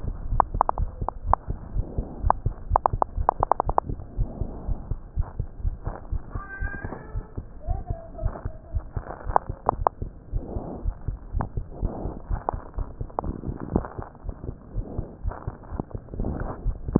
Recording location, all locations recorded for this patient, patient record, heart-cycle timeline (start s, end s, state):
aortic valve (AV)
aortic valve (AV)+pulmonary valve (PV)+tricuspid valve (TV)+mitral valve (MV)
#Age: Child
#Sex: Male
#Height: 116.0 cm
#Weight: 20.5 kg
#Pregnancy status: False
#Murmur: Absent
#Murmur locations: nan
#Most audible location: nan
#Systolic murmur timing: nan
#Systolic murmur shape: nan
#Systolic murmur grading: nan
#Systolic murmur pitch: nan
#Systolic murmur quality: nan
#Diastolic murmur timing: nan
#Diastolic murmur shape: nan
#Diastolic murmur grading: nan
#Diastolic murmur pitch: nan
#Diastolic murmur quality: nan
#Outcome: Normal
#Campaign: 2015 screening campaign
0.00	4.11	unannotated
4.11	4.18	diastole
4.18	4.30	S1
4.30	4.38	systole
4.38	4.48	S2
4.48	4.66	diastole
4.66	4.78	S1
4.78	4.88	systole
4.88	4.98	S2
4.98	5.16	diastole
5.16	5.30	S1
5.30	5.36	systole
5.36	5.50	S2
5.50	5.64	diastole
5.64	5.78	S1
5.78	5.84	systole
5.84	5.94	S2
5.94	6.10	diastole
6.10	6.22	S1
6.22	6.34	systole
6.34	6.44	S2
6.44	6.62	diastole
6.62	6.72	S1
6.72	6.82	systole
6.82	6.92	S2
6.92	7.12	diastole
7.12	7.24	S1
7.24	7.38	systole
7.38	7.46	S2
7.46	7.66	diastole
7.66	7.82	S1
7.82	7.88	systole
7.88	7.98	S2
7.98	8.20	diastole
8.20	8.34	S1
8.34	8.42	systole
8.42	8.54	S2
8.54	8.74	diastole
8.74	8.84	S1
8.84	8.92	systole
8.92	9.04	S2
9.04	9.26	diastole
9.26	9.36	S1
9.36	9.48	systole
9.48	9.56	S2
9.56	9.74	diastole
9.74	9.88	S1
9.88	10.02	systole
10.02	10.14	S2
10.14	10.34	diastole
10.34	10.44	S1
10.44	10.52	systole
10.52	10.64	S2
10.64	10.82	diastole
10.82	10.96	S1
10.96	11.06	systole
11.06	11.18	S2
11.18	11.34	diastole
11.34	11.48	S1
11.48	11.56	systole
11.56	11.66	S2
11.66	11.82	diastole
11.82	11.96	S1
11.96	12.02	systole
12.02	12.14	S2
12.14	12.28	diastole
12.28	12.42	S1
12.42	12.54	systole
12.54	12.62	S2
12.62	12.76	diastole
12.76	12.88	S1
12.88	12.96	systole
12.96	13.08	S2
13.08	13.24	diastole
13.24	13.36	S1
13.36	13.46	systole
13.46	13.56	S2
13.56	13.72	diastole
13.72	13.88	S1
13.88	13.98	systole
13.98	14.04	S2
14.04	14.24	diastole
14.24	14.34	S1
14.34	14.48	systole
14.48	14.56	S2
14.56	14.74	diastole
14.74	14.86	S1
14.86	14.96	systole
14.96	15.06	S2
15.06	15.24	diastole
15.24	15.36	S1
15.36	15.46	systole
15.46	15.54	S2
15.54	15.72	diastole
15.72	15.84	S1
15.84	15.94	systole
15.94	16.00	S2
16.00	16.18	diastole
16.18	16.99	unannotated